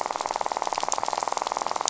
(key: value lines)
label: biophony, rattle
recorder: SoundTrap 500